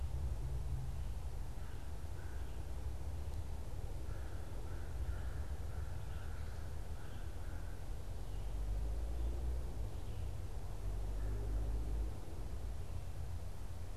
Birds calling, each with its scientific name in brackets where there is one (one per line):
American Crow (Corvus brachyrhynchos)